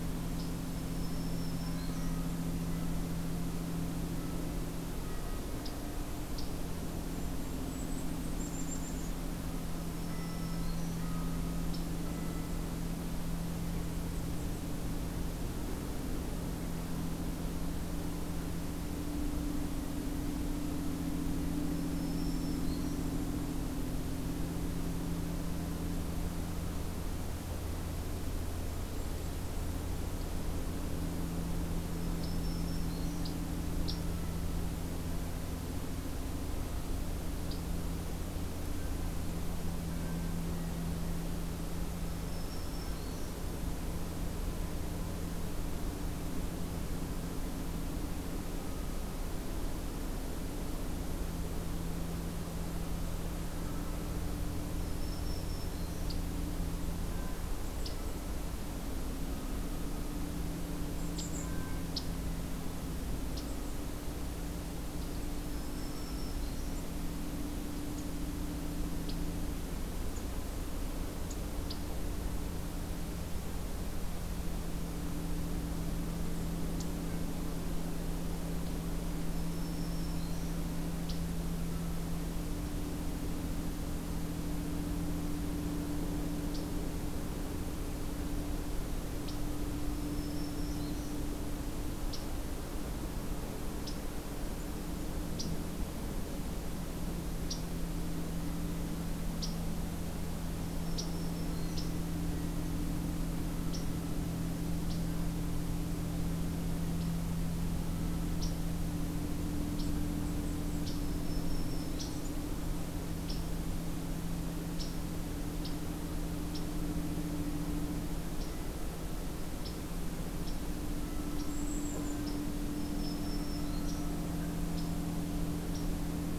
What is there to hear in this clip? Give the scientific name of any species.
Setophaga virens, Regulus satrapa, unidentified call